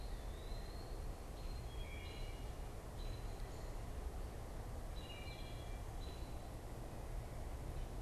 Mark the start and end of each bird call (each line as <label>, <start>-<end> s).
American Robin (Turdus migratorius), 0.0-8.0 s
Eastern Wood-Pewee (Contopus virens), 0.0-8.0 s
Wood Thrush (Hylocichla mustelina), 0.0-8.0 s